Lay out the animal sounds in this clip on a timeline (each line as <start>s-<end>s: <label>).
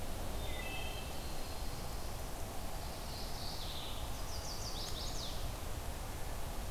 0.0s-1.3s: Wood Thrush (Hylocichla mustelina)
0.8s-2.6s: Black-throated Blue Warbler (Setophaga caerulescens)
2.7s-4.0s: Mourning Warbler (Geothlypis philadelphia)
3.8s-5.6s: Chestnut-sided Warbler (Setophaga pensylvanica)